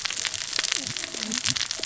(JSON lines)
{"label": "biophony, cascading saw", "recorder": "SoundTrap 600 or HydroMoth"}